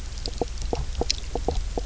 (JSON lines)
{"label": "biophony, knock croak", "recorder": "SoundTrap 300"}